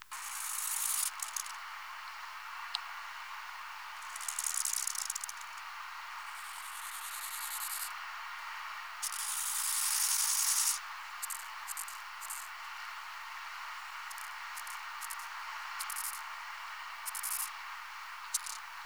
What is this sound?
Chorthippus biguttulus, an orthopteran